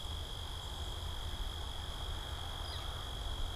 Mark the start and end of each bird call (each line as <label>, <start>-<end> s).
Northern Flicker (Colaptes auratus), 2.4-3.2 s